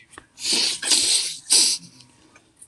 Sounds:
Sniff